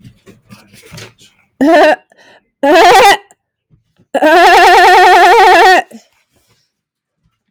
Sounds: Cough